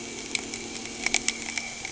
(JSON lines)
{"label": "anthrophony, boat engine", "recorder": "HydroMoth"}